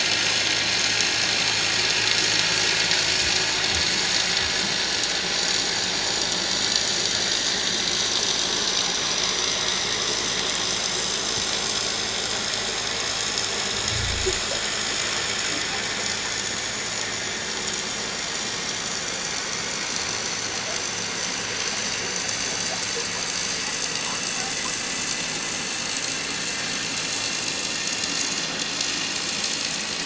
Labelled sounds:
3.3	3.6	vessel noise, 6.7 to 6.9 kHz
7.6	7.8	vessel noise, 3.2 to 3.3 kHz
8.4	8.7	vessel noise, 7.3 to 7.5 kHz
12.3	13.5	vessel noise, 6.7 to 7.0 kHz
19.9	20.2	vessel noise, 6.1 to 6.4 kHz
24.9	25.4	vessel noise, 4.1 to 6.9 kHz
26.5	26.7	vessel noise, 5.4 to 5.5 kHz

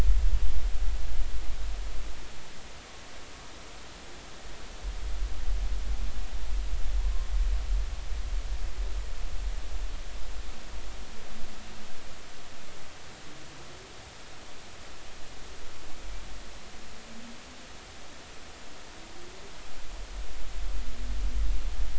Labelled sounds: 7.0	7.3	humpback whale, 0.93 to 1.1 kHz

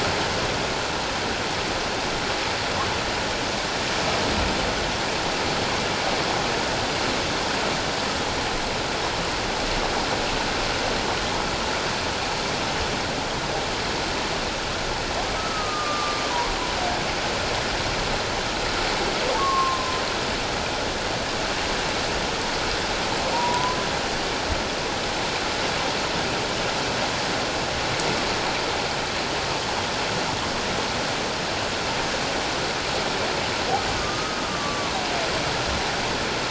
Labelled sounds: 15.4	16.2	humpback whale, 1.1 to 1.3 kHz
19.4	20.0	humpback whale, 1.0 to 1.2 kHz
23.3	23.8	humpback whale, 0.88 to 1.1 kHz
34.0	34.9	humpback whale, 1.0 to 1.3 kHz

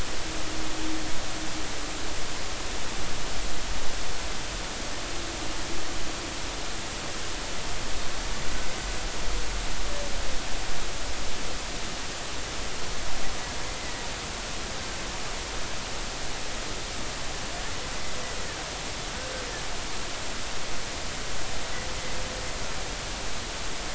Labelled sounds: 13.8	14.0	humpback whale, 1.9 to 2.1 kHz

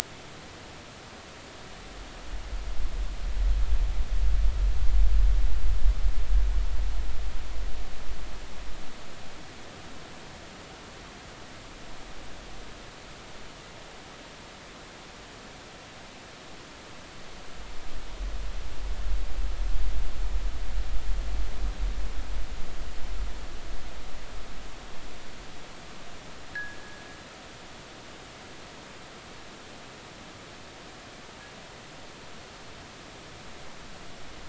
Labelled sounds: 26.5	26.8	fishing gear, 1.5 to 1.9 kHz

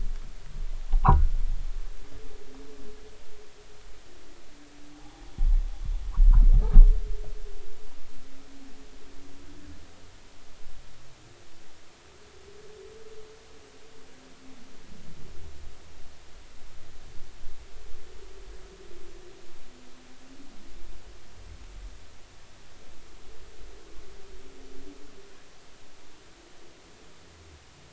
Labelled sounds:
1.0	1.3	rubbing on or near the hydrophone, 0.80 to 1.5 kHz
4.9	5.2	rubbing on or near the hydrophone, 0.80 to 0.96 kHz

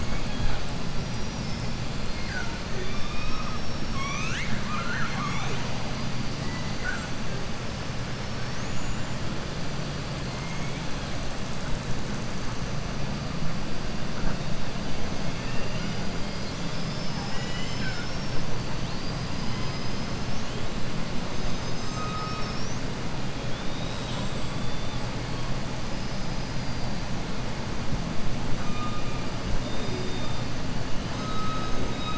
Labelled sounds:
15.3	16.0	killer whale, southern resident, 1.3 to 5.8 kHz
21.3	22.8	killer whale, southern resident, 4.6 to 7.6 kHz
23.4	25.1	killer whale, southern resident, 2.5 to 8.0 kHz
25.9	26.9	killer whale, southern resident, 4.2 to 6.0 kHz
31.0	32.1	killer whale, southern resident, 3.0 to 7.0 kHz

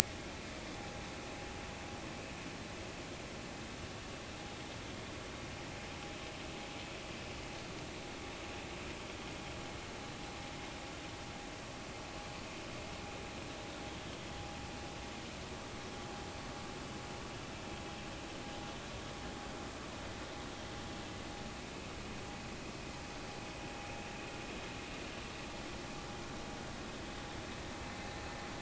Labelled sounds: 0.7	1.0	vessel noise, 0.80 to 0.86 kHz

